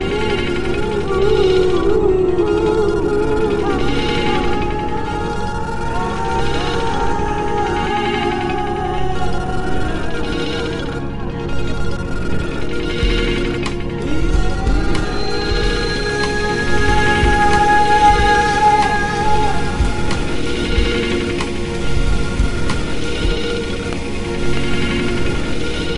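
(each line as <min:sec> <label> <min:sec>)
0:00.0 A rhythmic fragment of a modern-style song. 0:26.0
0:16.7 A loud, rhythmic fragment of a modern-style song. 0:19.4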